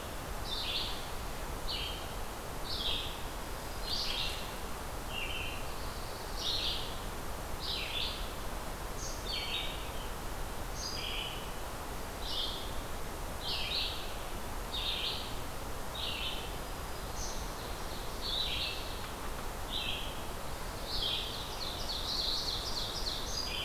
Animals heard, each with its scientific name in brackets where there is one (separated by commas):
Black-throated Blue Warbler (Setophaga caerulescens), Red-eyed Vireo (Vireo olivaceus), Ovenbird (Seiurus aurocapilla)